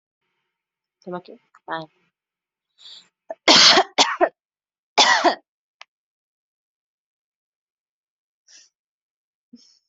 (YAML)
expert_labels:
- quality: good
  cough_type: dry
  dyspnea: false
  wheezing: false
  stridor: false
  choking: false
  congestion: false
  nothing: true
  diagnosis: healthy cough
  severity: pseudocough/healthy cough
age: 27
gender: female
respiratory_condition: true
fever_muscle_pain: false
status: healthy